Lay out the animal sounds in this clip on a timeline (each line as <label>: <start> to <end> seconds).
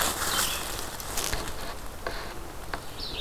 Red-eyed Vireo (Vireo olivaceus): 0.2 to 3.2 seconds